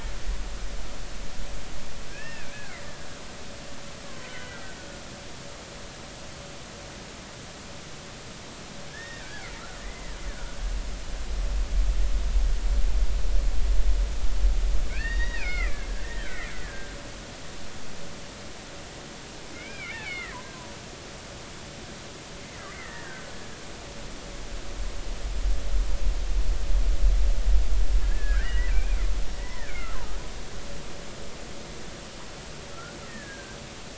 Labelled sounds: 2.1	2.6	killer whale, Bigg's (transient), 2.3 to 2.8 kHz
3.1	4.6	killer whale, Bigg's (transient), 1.3 to 3.1 kHz
8.9	10.6	killer whale, Bigg's (transient), 1.3 to 2.1 kHz
14.9	17.0	killer whale, Bigg's (transient), 1.1 to 4.8 kHz
19.5	20.4	killer whale, Bigg's (transient), 1.3 to 2.5 kHz
22.7	23.3	killer whale, Bigg's (transient), 1.5 to 2.2 kHz
28.0	30.0	killer whale, Bigg's (transient), 0.86 to 2.5 kHz
32.7	33.0	killer whale, Bigg's (transient), 1.2 to 1.5 kHz

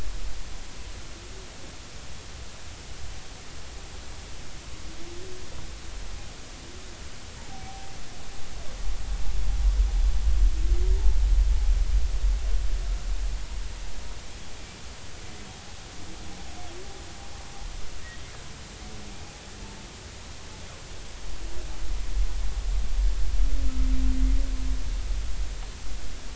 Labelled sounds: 7.4	7.9	humpback whale, 0.80 to 0.96 kHz

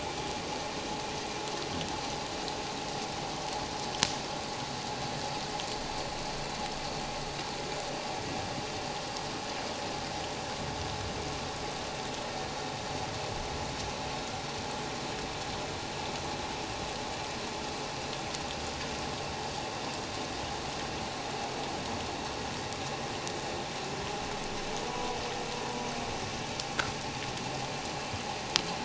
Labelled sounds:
24.9	25.2	vessel noise, 0.94 to 1.1 kHz

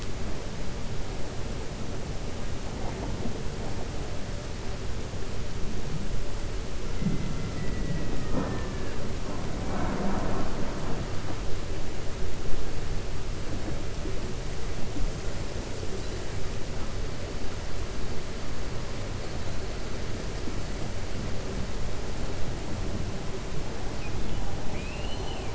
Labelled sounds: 7.5	8.1	killer whale, 1.4 to 2.7 kHz
24.6	25.5	killer whale, 0.65 to 4.3 kHz

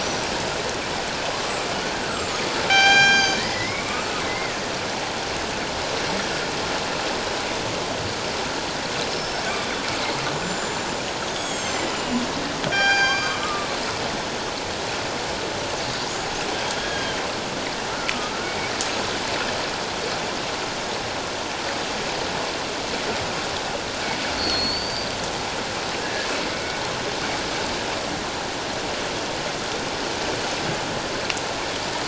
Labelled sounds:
0.0	0.3	killer whale, northern resident, G clan, 5.6 to 6.0 kHz
2.0	4.5	killer whale, northern resident, G clan, 0.78 to 8.0 kHz
9.1	9.5	killer whale, northern resident, G clan, 5.2 to 5.4 kHz
10.3	10.9	killer whale, northern resident, G clan, 6.9 to 7.3 kHz
11.3	13.7	killer whale, northern resident, G clan, 0.78 to 8.0 kHz
16.8	17.2	killer whale, northern resident, G clan, 1.5 to 3.4 kHz
17.9	18.4	killer whale, northern resident, G clan, 1.2 to 1.5 kHz
24.4	25.2	killer whale, northern resident, G clan, 4.2 to 4.8 kHz
26.0	26.8	killer whale, northern resident, G clan, 1.5 to 2.3 kHz

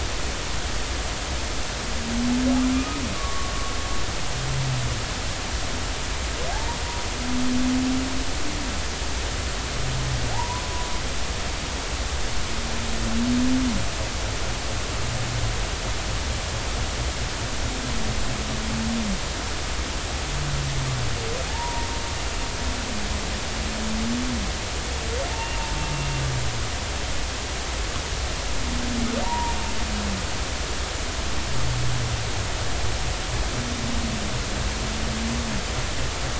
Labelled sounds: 2.7	3.5	humpback whale, 1.1 to 1.3 kHz
10.3	10.6	humpback whale, 0.80 to 1.1 kHz
21.5	21.9	humpback whale, 0.80 to 1.0 kHz
29.2	29.6	humpback whale, 0.86 to 1.0 kHz

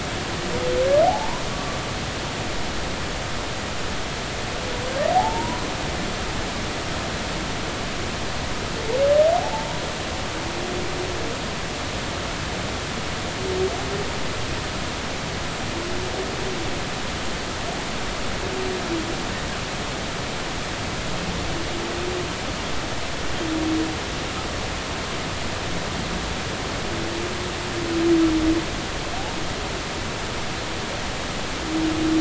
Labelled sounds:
1.0	1.4	humpback whale, 0.80 to 1.1 kHz
5.1	5.6	humpback whale, 0.80 to 1.0 kHz
9.3	9.8	humpback whale, 0.80 to 1.0 kHz

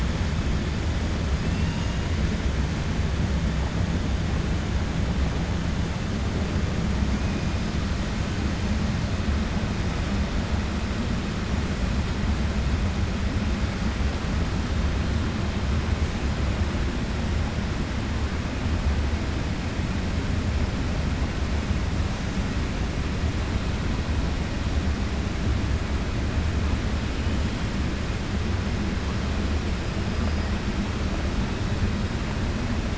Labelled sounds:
1.4	2.0	killer whale, 1.8 to 3.8 kHz

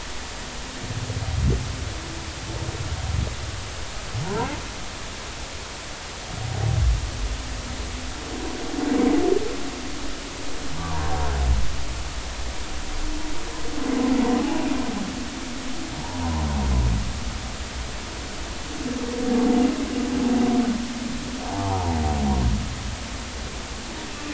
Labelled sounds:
10.8	11.1	humpback whale, 0.83 to 1.3 kHz
16.0	16.4	humpback whale, 0.80 to 1.1 kHz
21.4	22.0	humpback whale, 0.80 to 1.1 kHz

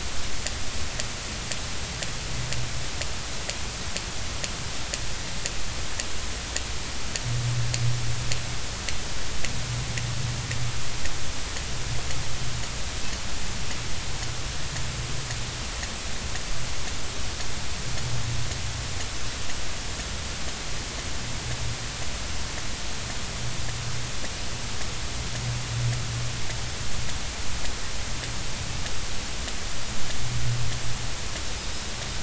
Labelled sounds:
31.6	31.9	Pacific white-sided dolphin, 3.7 to 3.9 kHz

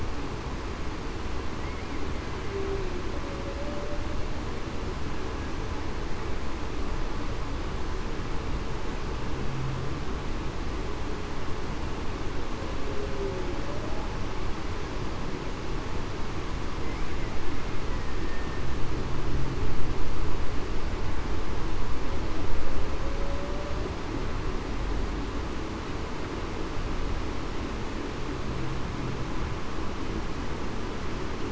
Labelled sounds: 2.5	2.9	humpback whale, 0.35 to 0.42 kHz
3.5	4.0	humpback whale, 0.54 to 0.63 kHz
18.0	18.6	killer whale, Bigg's (transient), 1.8 to 1.9 kHz
23.2	23.6	humpback whale, 0.54 to 0.61 kHz

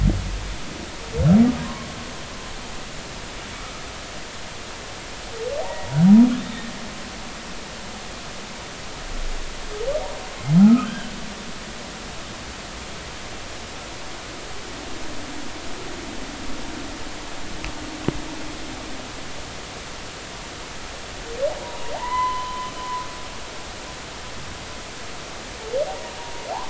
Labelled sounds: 1.6	2.0	humpback whale, 0.93 to 1.2 kHz
5.6	6.0	humpback whale, 0.80 to 0.99 kHz
6.4	6.7	humpback whale, 3.6 to 3.8 kHz
10.6	11.1	humpback whale, 1.2 to 1.7 kHz
21.9	22.7	humpback whale, 0.80 to 4.1 kHz

